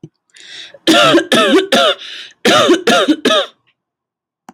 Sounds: Cough